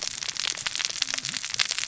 {"label": "biophony, cascading saw", "recorder": "SoundTrap 600 or HydroMoth"}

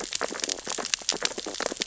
{"label": "biophony, sea urchins (Echinidae)", "recorder": "SoundTrap 600 or HydroMoth"}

